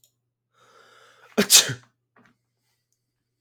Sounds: Sneeze